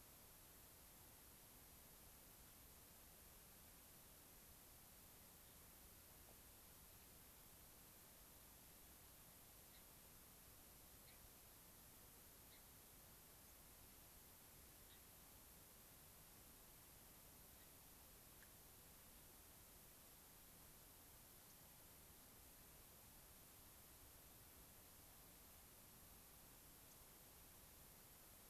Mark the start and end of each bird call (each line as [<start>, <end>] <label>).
[9.65, 9.85] Gray-crowned Rosy-Finch (Leucosticte tephrocotis)
[11.05, 11.15] Gray-crowned Rosy-Finch (Leucosticte tephrocotis)
[12.45, 12.65] Gray-crowned Rosy-Finch (Leucosticte tephrocotis)
[13.45, 13.55] unidentified bird
[14.85, 15.05] Gray-crowned Rosy-Finch (Leucosticte tephrocotis)
[21.45, 21.55] unidentified bird
[26.85, 26.95] unidentified bird